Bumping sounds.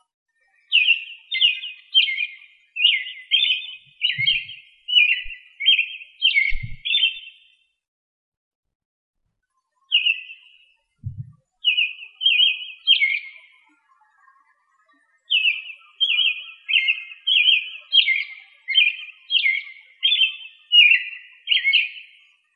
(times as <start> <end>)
11.0 11.3